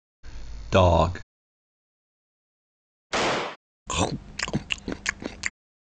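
At 0.73 seconds, a voice says "dog". Next, at 3.1 seconds, gunfire can be heard. Finally, at 3.86 seconds, there is chewing.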